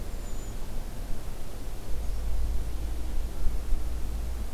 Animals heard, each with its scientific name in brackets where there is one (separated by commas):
Hermit Thrush (Catharus guttatus)